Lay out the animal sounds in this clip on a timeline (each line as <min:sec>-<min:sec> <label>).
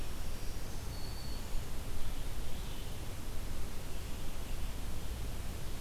0:00.0-0:01.7 Black-throated Green Warbler (Setophaga virens)